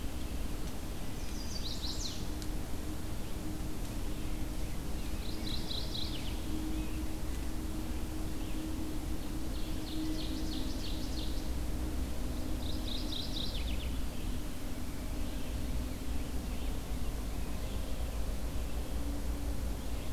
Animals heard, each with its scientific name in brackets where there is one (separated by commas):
Red-eyed Vireo (Vireo olivaceus), Ovenbird (Seiurus aurocapilla), Mourning Warbler (Geothlypis philadelphia), Chestnut-sided Warbler (Setophaga pensylvanica)